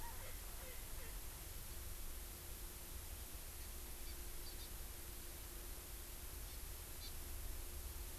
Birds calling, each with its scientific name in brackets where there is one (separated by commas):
Hawaii Amakihi (Chlorodrepanis virens), Erckel's Francolin (Pternistis erckelii)